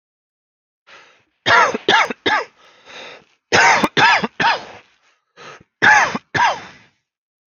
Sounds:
Cough